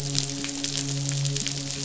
{"label": "biophony, midshipman", "recorder": "SoundTrap 500"}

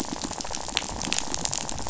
{"label": "biophony, rattle", "recorder": "SoundTrap 500"}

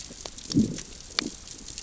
{"label": "biophony, growl", "recorder": "SoundTrap 600 or HydroMoth"}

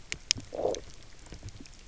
{"label": "biophony, low growl", "recorder": "SoundTrap 300"}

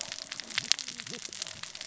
{"label": "biophony, cascading saw", "recorder": "SoundTrap 600 or HydroMoth"}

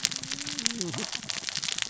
{"label": "biophony, cascading saw", "recorder": "SoundTrap 600 or HydroMoth"}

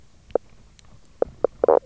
{"label": "biophony, knock croak", "recorder": "SoundTrap 300"}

